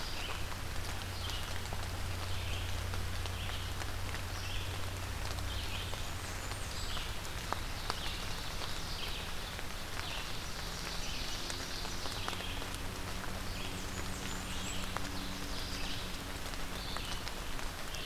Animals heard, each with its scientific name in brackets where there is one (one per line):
Blackburnian Warbler (Setophaga fusca)
Red-eyed Vireo (Vireo olivaceus)
Ovenbird (Seiurus aurocapilla)